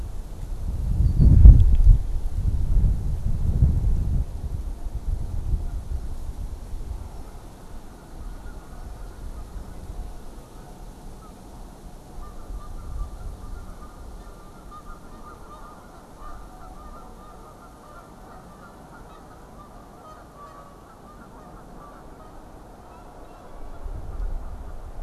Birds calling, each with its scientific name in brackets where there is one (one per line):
Red-winged Blackbird (Agelaius phoeniceus)
Canada Goose (Branta canadensis)